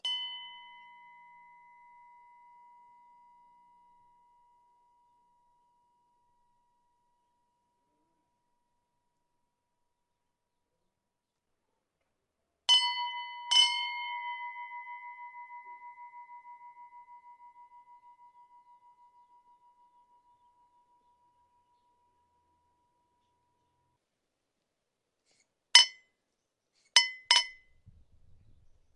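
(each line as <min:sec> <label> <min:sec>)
0:00.0 A bell rings crisply and softly with resonance. 0:07.1
0:12.5 A bell rings crisply with resonance. 0:22.0
0:25.6 A bell rings with a crisp, clear tone. 0:27.8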